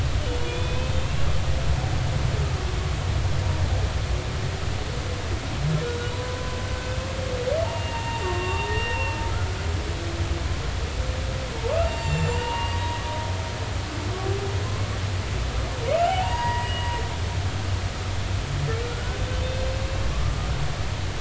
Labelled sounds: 0.4	1.3	humpback whale, 2.4 to 3.7 kHz
6.1	6.4	humpback whale, 0.93 to 1.0 kHz
7.6	9.2	humpback whale, 0.83 to 2.9 kHz
11.7	12.8	humpback whale, 0.86 to 7.5 kHz
16.0	16.8	humpback whale, 0.80 to 4.8 kHz
18.9	19.2	humpback whale, 1.3 to 1.5 kHz
20.1	20.5	humpback whale, 1.1 to 1.3 kHz

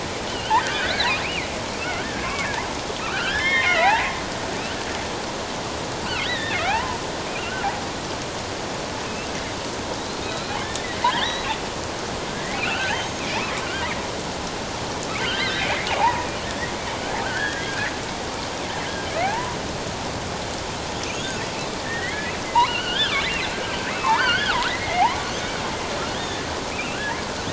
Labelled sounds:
0.2	1.5	killer whale, offshore, 1.4 to 4.6 kHz
1.8	2.5	killer whale, offshore, 1.0 to 2.4 kHz
3.0	4.2	killer whale, offshore, 0.78 to 5.6 kHz
6.2	7.0	killer whale, offshore, 0.78 to 4.0 kHz
7.4	7.7	killer whale, offshore, 1.3 to 1.6 kHz
10.0	11.5	killer whale, offshore, 1.4 to 4.3 kHz
12.4	12.9	killer whale, offshore, 1.3 to 3.2 kHz
13.6	13.9	killer whale, offshore, 1.3 to 1.7 kHz
15.2	16.7	killer whale, offshore, 0.78 to 4.2 kHz
17.2	17.9	killer whale, offshore, 1.3 to 2.2 kHz
19.2	19.6	killer whale, offshore, 0.78 to 1.1 kHz
21.1	21.4	killer whale, offshore, 6.4 to 6.8 kHz
21.8	23.1	killer whale, offshore, 1.3 to 3.8 kHz
23.5	25.3	killer whale, offshore, 0.78 to 4.8 kHz
26.1	27.0	killer whale, offshore, 1.6 to 2.9 kHz

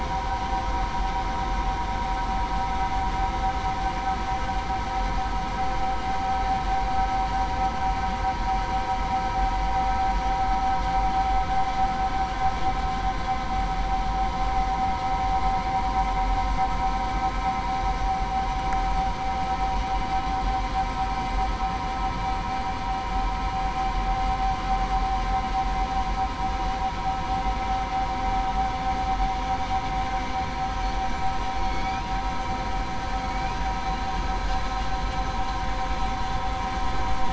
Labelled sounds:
31.6	32.0	killer whale, southern resident, 4.3 to 4.8 kHz

